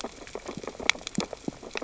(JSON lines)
{"label": "biophony, sea urchins (Echinidae)", "recorder": "SoundTrap 600 or HydroMoth"}